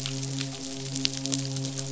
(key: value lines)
label: biophony, midshipman
recorder: SoundTrap 500